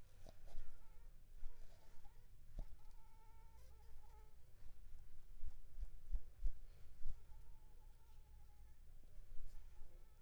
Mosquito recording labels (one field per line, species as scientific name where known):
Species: Anopheles funestus s.s.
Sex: female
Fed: unfed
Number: one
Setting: cup